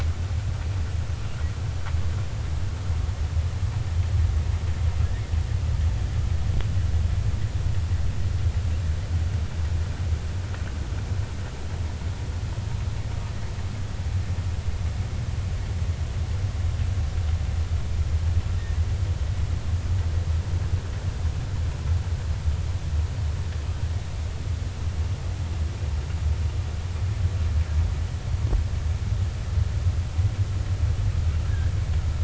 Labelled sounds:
31.5	31.7	humpback whale, 1.5 to 1.8 kHz

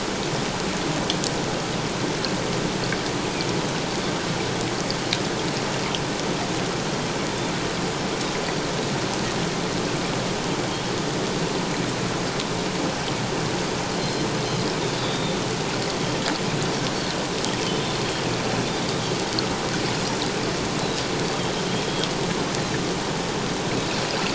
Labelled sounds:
8.4	8.7	Pacific white-sided dolphin, 4.4 to 4.7 kHz
14.0	15.4	Pacific white-sided dolphin, 3.4 to 4.2 kHz
17.7	18.0	Pacific white-sided dolphin, 3.4 to 3.6 kHz

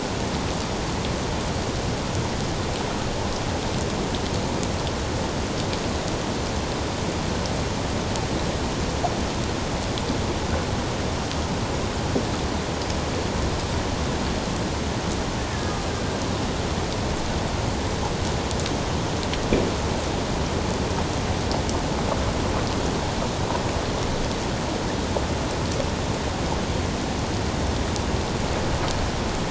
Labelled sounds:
15.5	15.8	killer whale, Bigg's (transient), 1.6 to 1.8 kHz

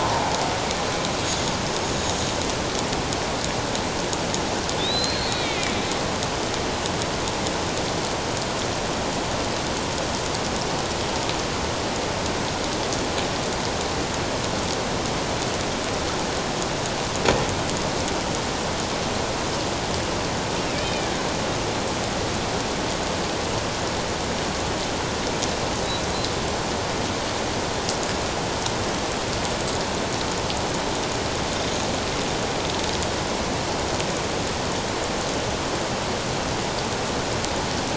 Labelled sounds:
0.0	0.4	killer whale, Bigg's (transient), 0.78 to 1.1 kHz
4.8	5.7	killer whale, Bigg's (transient), 2.0 to 4.5 kHz
20.7	21.1	killer whale, Bigg's (transient), 2.2 to 2.6 kHz

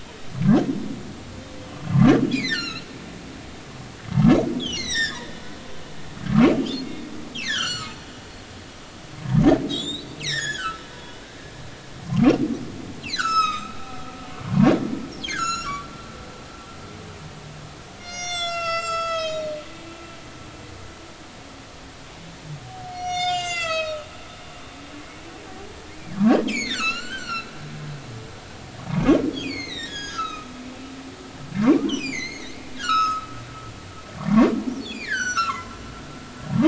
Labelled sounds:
2.3	2.9	humpback whale, 1.2 to 7.0 kHz
4.6	5.3	humpback whale, 1.6 to 8.0 kHz
6.5	6.9	humpback whale, 2.7 to 2.9 kHz
7.4	8.0	humpback whale, 1.1 to 7.4 kHz
9.7	11.2	humpback whale, 0.90 to 7.6 kHz
12.1	14.7	humpback whale, 0.90 to 8.0 kHz
15.2	15.8	humpback whale, 1.2 to 7.2 kHz
17.9	20.1	humpback whale, 1.2 to 8.0 kHz
22.9	24.1	humpback whale, 1.1 to 8.0 kHz
26.1	27.5	humpback whale, 1.1 to 6.0 kHz
29.4	30.5	humpback whale, 1.2 to 7.0 kHz
31.6	32.5	humpback whale, 0.90 to 7.8 kHz
32.8	33.3	humpback whale, 1.1 to 6.8 kHz
34.2	35.8	humpback whale, 0.93 to 7.8 kHz

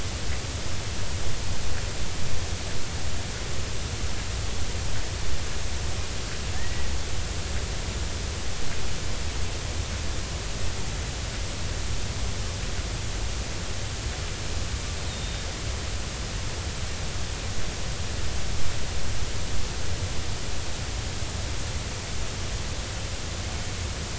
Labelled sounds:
6.6	6.9	killer whale, Bigg's (transient), 1.7 to 2.0 kHz
15.1	15.4	killer whale, Bigg's (transient), 3.6 to 3.8 kHz

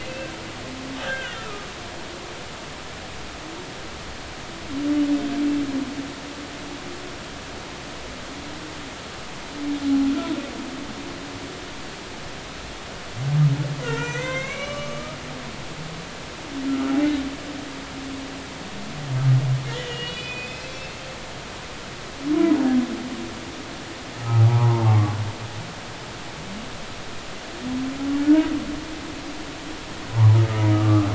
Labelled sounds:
1.0	1.7	humpback whale, 1.1 to 3.3 kHz
13.8	15.2	humpback whale, 0.86 to 6.4 kHz
16.7	17.0	humpback whale, 1.2 to 1.5 kHz
19.7	21.0	humpback whale, 1.7 to 5.2 kHz
24.2	25.0	humpback whale, 0.80 to 1.2 kHz
30.1	31.1	humpback whale, 0.80 to 1.3 kHz

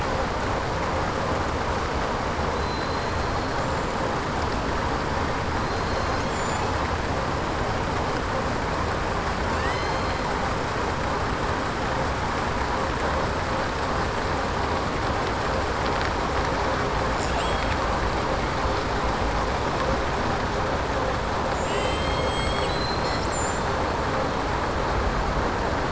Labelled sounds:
2.5	3.1	killer whale, southern resident, 3.6 to 4.2 kHz
5.6	6.7	killer whale, southern resident, 4.1 to 7.5 kHz
21.4	22.8	killer whale, southern resident, 6.4 to 7.9 kHz

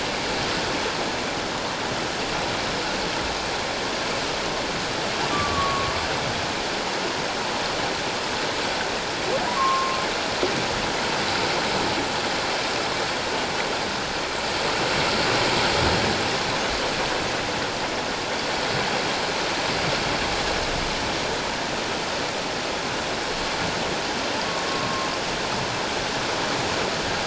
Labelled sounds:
5.3	5.9	humpback whale, 1.1 to 1.2 kHz
9.5	10.0	humpback whale, 0.91 to 1.2 kHz
24.8	25.1	humpback whale, 1.0 to 1.1 kHz

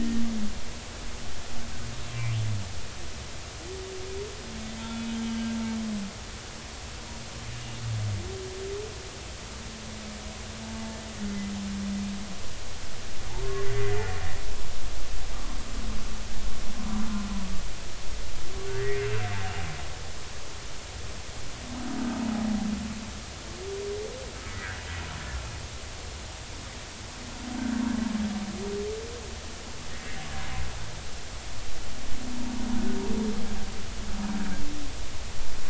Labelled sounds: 4.8	5.1	humpback whale, 1.3 to 3.5 kHz
10.6	11.0	humpback whale, 0.83 to 0.93 kHz
18.8	19.2	humpback whale, 1.5 to 2.8 kHz
29.9	30.1	humpback whale, 1.8 to 2.0 kHz

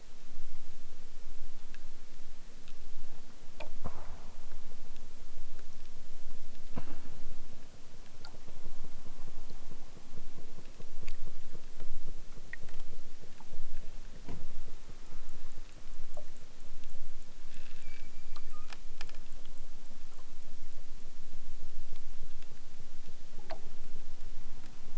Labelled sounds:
17.8	18.7	killer whale, southern Alaska resident, 0.81 to 8.0 kHz

